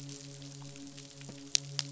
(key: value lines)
label: biophony, midshipman
recorder: SoundTrap 500